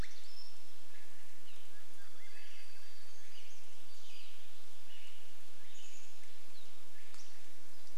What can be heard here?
Swainson's Thrush call, unidentified sound, warbler song, Pacific-slope Flycatcher call, Swainson's Thrush song, Western Tanager song